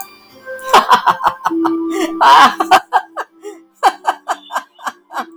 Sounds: Laughter